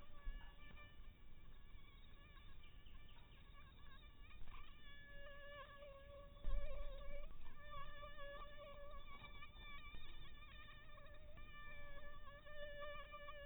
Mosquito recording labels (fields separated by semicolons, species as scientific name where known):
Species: Anopheles maculatus; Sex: female; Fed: unfed; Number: one; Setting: cup